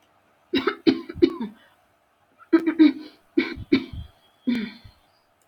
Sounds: Throat clearing